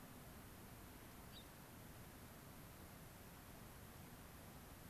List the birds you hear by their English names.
Gray-crowned Rosy-Finch